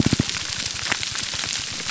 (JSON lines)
{"label": "biophony, grouper groan", "recorder": "SoundTrap 300"}